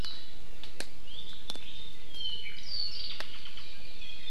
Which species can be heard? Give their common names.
Apapane